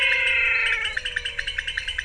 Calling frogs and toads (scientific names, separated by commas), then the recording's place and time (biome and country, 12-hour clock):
Leptodactylus podicipinus, Physalaemus albonotatus
Cerrado, Brazil, 6:00pm